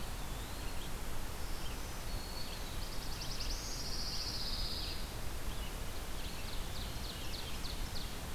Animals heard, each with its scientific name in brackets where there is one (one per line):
Black-throated Green Warbler (Setophaga virens)
Red-eyed Vireo (Vireo olivaceus)
Black-throated Blue Warbler (Setophaga caerulescens)
Eastern Wood-Pewee (Contopus virens)
Ovenbird (Seiurus aurocapilla)
Pine Warbler (Setophaga pinus)